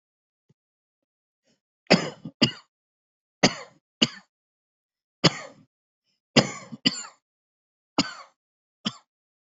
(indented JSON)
{
  "expert_labels": [
    {
      "quality": "ok",
      "cough_type": "dry",
      "dyspnea": false,
      "wheezing": true,
      "stridor": false,
      "choking": false,
      "congestion": false,
      "nothing": false,
      "diagnosis": "COVID-19",
      "severity": "severe"
    }
  ]
}